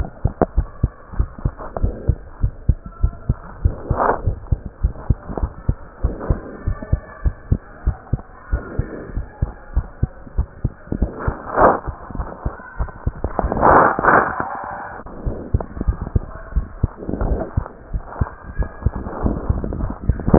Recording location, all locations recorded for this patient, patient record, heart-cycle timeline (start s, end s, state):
tricuspid valve (TV)
aortic valve (AV)+pulmonary valve (PV)+tricuspid valve (TV)+mitral valve (MV)
#Age: Child
#Sex: Male
#Height: 106.0 cm
#Weight: 20.3 kg
#Pregnancy status: False
#Murmur: Absent
#Murmur locations: nan
#Most audible location: nan
#Systolic murmur timing: nan
#Systolic murmur shape: nan
#Systolic murmur grading: nan
#Systolic murmur pitch: nan
#Systolic murmur quality: nan
#Diastolic murmur timing: nan
#Diastolic murmur shape: nan
#Diastolic murmur grading: nan
#Diastolic murmur pitch: nan
#Diastolic murmur quality: nan
#Outcome: Normal
#Campaign: 2015 screening campaign
0.00	0.10	S1
0.10	0.24	systole
0.24	0.32	S2
0.32	0.52	diastole
0.52	0.68	S1
0.68	0.80	systole
0.80	0.92	S2
0.92	1.16	diastole
1.16	1.30	S1
1.30	1.42	systole
1.42	1.54	S2
1.54	1.80	diastole
1.80	1.94	S1
1.94	2.04	systole
2.04	2.18	S2
2.18	2.40	diastole
2.40	2.54	S1
2.54	2.68	systole
2.68	2.82	S2
2.82	3.02	diastole
3.02	3.16	S1
3.16	3.28	systole
3.28	3.38	S2
3.38	3.60	diastole
3.60	3.76	S1
3.76	3.88	systole
3.88	3.98	S2
3.98	4.22	diastole
4.22	4.38	S1
4.38	4.50	systole
4.50	4.60	S2
4.60	4.80	diastole
4.80	4.94	S1
4.94	5.06	systole
5.06	5.20	S2
5.20	5.40	diastole
5.40	5.52	S1
5.52	5.64	systole
5.64	5.76	S2
5.76	6.00	diastole
6.00	6.16	S1
6.16	6.28	systole
6.28	6.42	S2
6.42	6.66	diastole
6.66	6.80	S1
6.80	6.92	systole
6.92	7.02	S2
7.02	7.22	diastole
7.22	7.36	S1
7.36	7.48	systole
7.48	7.62	S2
7.62	7.86	diastole
7.86	7.98	S1
7.98	8.12	systole
8.12	8.20	S2
8.20	8.50	diastole
8.50	8.62	S1
8.62	8.76	systole
8.76	8.88	S2
8.88	9.14	diastole
9.14	9.26	S1
9.26	9.38	systole
9.38	9.52	S2
9.52	9.74	diastole
9.74	9.86	S1
9.86	9.98	systole
9.98	10.10	S2
10.10	10.36	diastole
10.36	10.48	S1
10.48	10.60	systole
10.60	10.72	S2
10.72	10.98	diastole
10.98	11.06	S1